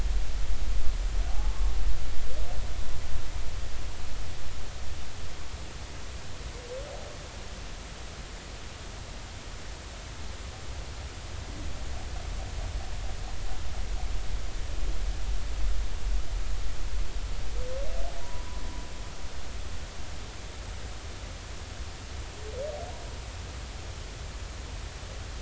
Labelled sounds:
1.3	1.5	humpback whale, 0.80 to 0.93 kHz
18.2	18.6	humpback whale, 0.93 to 1.1 kHz

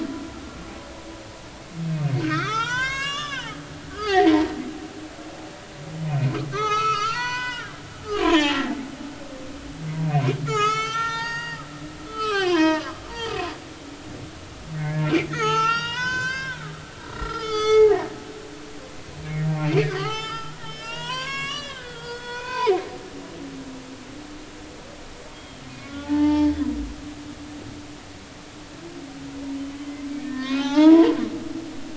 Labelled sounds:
2.2	4.5	humpback whale, 0.80 to 8.0 kHz
6.1	8.6	humpback whale, 0.80 to 7.1 kHz
10.4	11.6	humpback whale, 0.80 to 7.5 kHz
12.1	13.0	humpback whale, 0.86 to 5.8 kHz
14.8	16.6	humpback whale, 0.80 to 7.5 kHz
17.2	18.1	humpback whale, 0.80 to 7.4 kHz
19.5	22.9	humpback whale, 0.80 to 7.9 kHz
25.3	26.5	humpback whale, 0.80 to 3.4 kHz
30.2	31.1	humpback whale, 0.80 to 2.9 kHz

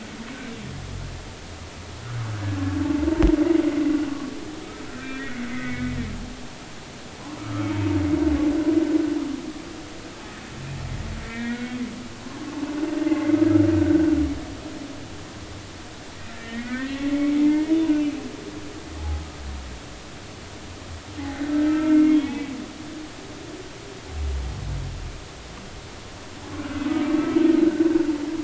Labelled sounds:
4.9	5.5	humpback whale, 1.5 to 2.3 kHz
6.4	7.7	humpback whale, 1.2 to 2.3 kHz
11.2	11.8	humpback whale, 1.4 to 2.4 kHz
13.8	14.1	humpback whale, 1.4 to 1.6 kHz
16.4	18.6	humpback whale, 0.86 to 3.0 kHz
19.0	19.2	humpback whale, 0.80 to 0.90 kHz
21.7	22.5	humpback whale, 1.2 to 3.5 kHz
26.9	27.6	humpback whale, 1.2 to 3.2 kHz

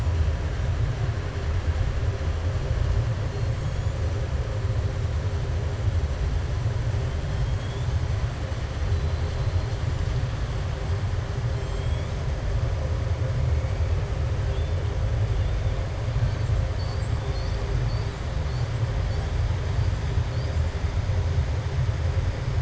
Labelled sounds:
8.9	9.8	killer whale, southern resident, 3.2 to 4.4 kHz
11.5	12.2	killer whale, southern resident, 3.2 to 7.9 kHz

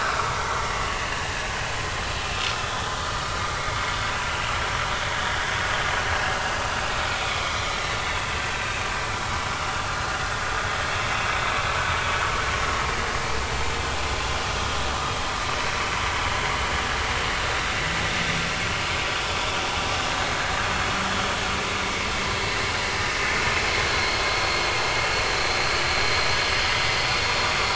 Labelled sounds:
0.0	0.6	vessel noise, 1.9 to 2.5 kHz
1.1	1.3	vessel noise, 1.7 to 1.8 kHz
2.6	2.9	vessel noise, 3.3 to 3.5 kHz
4.3	4.6	vessel noise, 2.7 to 2.9 kHz
7.3	8.4	vessel noise, 2.1 to 2.8 kHz
24.0	24.6	vessel noise, 4.2 to 4.4 kHz
25.3	25.7	vessel noise, 4.1 to 4.2 kHz

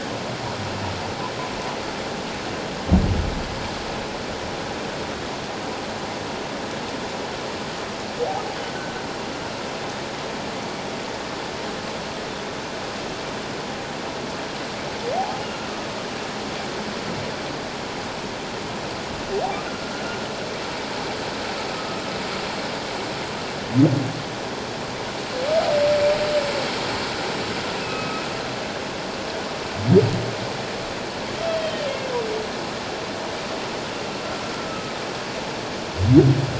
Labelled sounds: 19.7	20.1	humpback whale, 1.3 to 1.5 kHz
27.8	28.2	humpback whale, 1.1 to 2.7 kHz
31.4	31.8	humpback whale, 3.0 to 3.3 kHz
34.7	34.9	humpback whale, 1.2 to 1.3 kHz

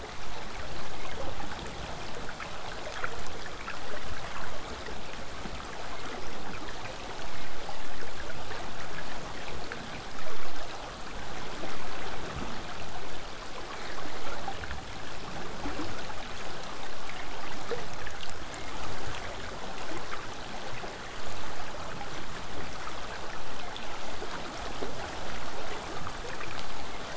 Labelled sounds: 22.2	27.1	vessel noise, 0 to 8.0 kHz

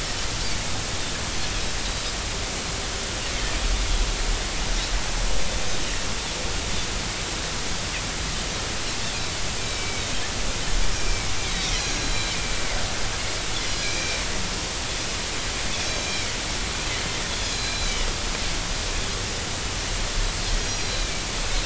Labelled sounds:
9.6	10.1	Pacific white-sided dolphin, 2.2 to 2.5 kHz
10.9	12.3	Pacific white-sided dolphin, 2.1 to 6.0 kHz
13.6	14.2	Pacific white-sided dolphin, 2.2 to 4.2 kHz
15.9	16.3	Pacific white-sided dolphin, 2.2 to 4.1 kHz
17.5	18.0	Pacific white-sided dolphin, 3.8 to 4.2 kHz
20.6	21.3	Pacific white-sided dolphin, 2.2 to 5.8 kHz

